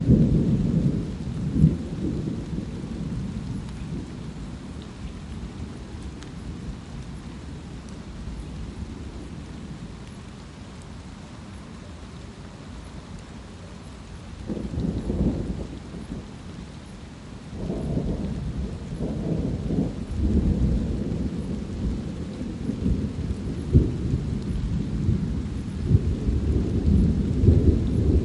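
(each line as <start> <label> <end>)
0.0 Stormy rain with loud thunder in the background. 28.2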